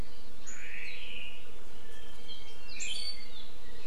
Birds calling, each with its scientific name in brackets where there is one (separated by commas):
Apapane (Himatione sanguinea)